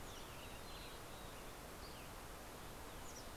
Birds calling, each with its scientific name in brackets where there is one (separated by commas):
Mountain Chickadee (Poecile gambeli), Fox Sparrow (Passerella iliaca)